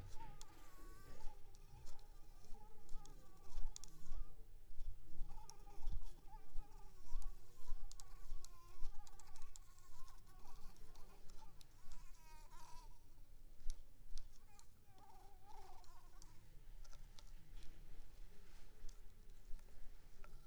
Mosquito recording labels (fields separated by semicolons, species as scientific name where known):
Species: Anopheles arabiensis; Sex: female; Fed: unfed; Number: one; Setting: cup